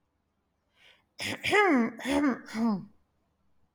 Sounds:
Throat clearing